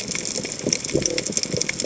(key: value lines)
label: biophony
recorder: HydroMoth